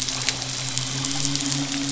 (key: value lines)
label: anthrophony, boat engine
recorder: SoundTrap 500